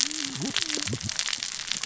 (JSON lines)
{"label": "biophony, cascading saw", "recorder": "SoundTrap 600 or HydroMoth"}